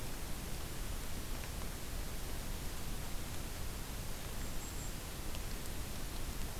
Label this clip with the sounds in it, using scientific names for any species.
Regulus satrapa